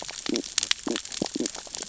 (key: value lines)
label: biophony, stridulation
recorder: SoundTrap 600 or HydroMoth